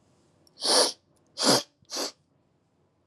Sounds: Sniff